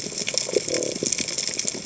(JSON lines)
{"label": "biophony", "recorder": "HydroMoth"}